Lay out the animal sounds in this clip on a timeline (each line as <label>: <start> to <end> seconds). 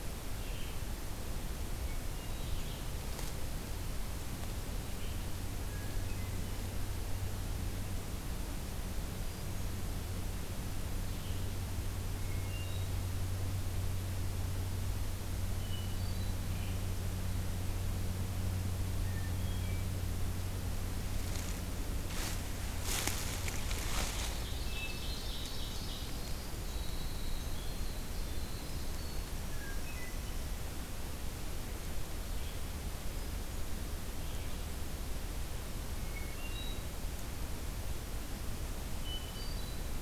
Red-eyed Vireo (Vireo olivaceus): 0.0 to 5.3 seconds
Hermit Thrush (Catharus guttatus): 1.8 to 2.6 seconds
Hermit Thrush (Catharus guttatus): 5.5 to 6.5 seconds
Hermit Thrush (Catharus guttatus): 9.1 to 9.9 seconds
Hermit Thrush (Catharus guttatus): 12.3 to 13.0 seconds
Hermit Thrush (Catharus guttatus): 15.5 to 16.5 seconds
Hermit Thrush (Catharus guttatus): 19.0 to 19.9 seconds
Ovenbird (Seiurus aurocapilla): 24.1 to 26.3 seconds
Winter Wren (Troglodytes hiemalis): 25.1 to 30.5 seconds
Hermit Thrush (Catharus guttatus): 29.2 to 30.3 seconds
Hermit Thrush (Catharus guttatus): 36.0 to 36.9 seconds
Hermit Thrush (Catharus guttatus): 38.9 to 40.0 seconds